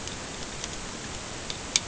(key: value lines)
label: ambient
recorder: HydroMoth